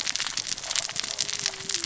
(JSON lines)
{"label": "biophony, cascading saw", "recorder": "SoundTrap 600 or HydroMoth"}